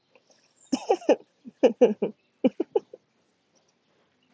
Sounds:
Laughter